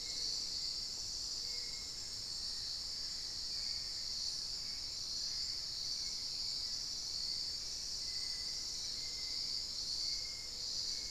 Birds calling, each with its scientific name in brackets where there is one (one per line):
Hauxwell's Thrush (Turdus hauxwelli)
Black-faced Antthrush (Formicarius analis)
Little Tinamou (Crypturellus soui)